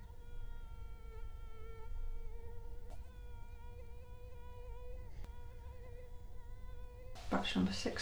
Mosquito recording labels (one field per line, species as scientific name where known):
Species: Culex quinquefasciatus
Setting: cup